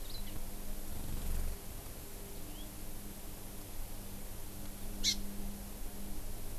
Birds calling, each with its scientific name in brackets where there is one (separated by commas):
Hawaii Amakihi (Chlorodrepanis virens), House Finch (Haemorhous mexicanus)